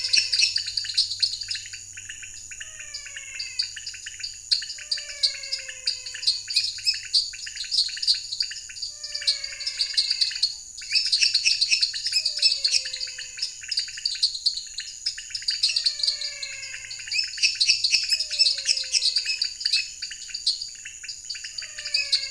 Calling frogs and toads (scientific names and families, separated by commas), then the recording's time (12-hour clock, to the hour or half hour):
Dendropsophus minutus (Hylidae), Physalaemus albonotatus (Leptodactylidae), Dendropsophus nanus (Hylidae), Leptodactylus podicipinus (Leptodactylidae)
~7pm